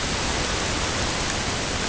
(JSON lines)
{"label": "ambient", "recorder": "HydroMoth"}